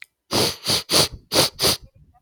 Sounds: Sniff